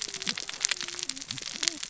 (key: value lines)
label: biophony, cascading saw
recorder: SoundTrap 600 or HydroMoth